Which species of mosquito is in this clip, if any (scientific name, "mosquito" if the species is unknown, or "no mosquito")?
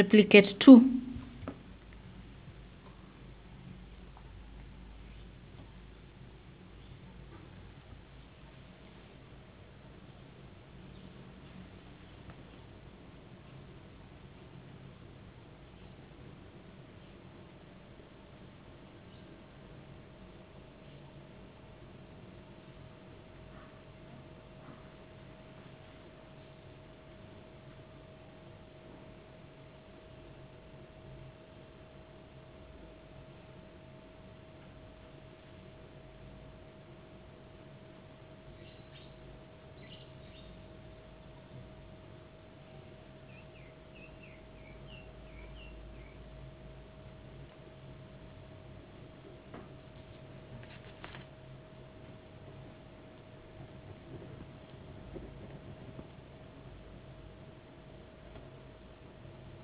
no mosquito